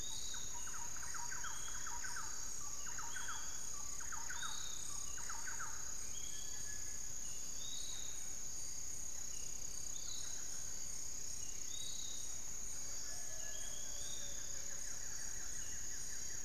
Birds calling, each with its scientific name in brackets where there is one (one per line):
Cinereous Tinamou (Crypturellus cinereus)
Buff-throated Woodcreeper (Xiphorhynchus guttatus)
Piratic Flycatcher (Legatus leucophaius)
Hauxwell's Thrush (Turdus hauxwelli)
Barred Forest-Falcon (Micrastur ruficollis)
Thrush-like Wren (Campylorhynchus turdinus)